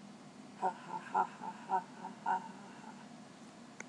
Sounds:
Laughter